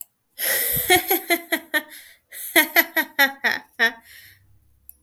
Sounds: Laughter